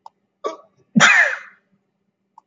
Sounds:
Sneeze